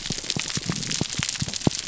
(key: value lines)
label: biophony, pulse
recorder: SoundTrap 300